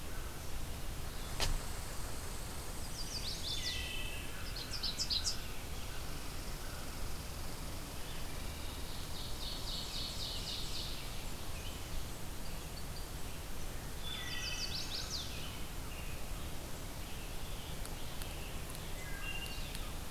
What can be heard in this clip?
American Crow, Blue-headed Vireo, Red Squirrel, Chestnut-sided Warbler, Wood Thrush, Ovenbird, American Robin, Blackburnian Warbler